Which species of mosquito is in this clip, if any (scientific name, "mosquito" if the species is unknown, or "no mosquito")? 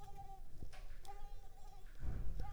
Mansonia africanus